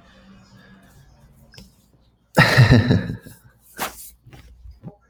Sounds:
Laughter